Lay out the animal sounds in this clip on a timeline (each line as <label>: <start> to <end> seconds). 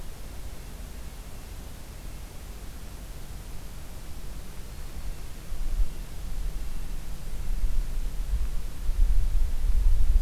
Red-breasted Nuthatch (Sitta canadensis): 5.3 to 7.5 seconds